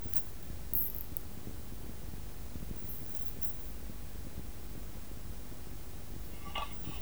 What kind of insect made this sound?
orthopteran